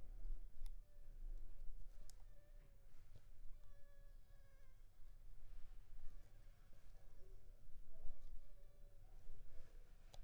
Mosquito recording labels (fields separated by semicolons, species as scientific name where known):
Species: Anopheles funestus s.s.; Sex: female; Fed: unfed; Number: one; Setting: cup